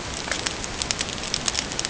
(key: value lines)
label: ambient
recorder: HydroMoth